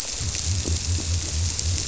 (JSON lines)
{"label": "biophony", "recorder": "SoundTrap 300"}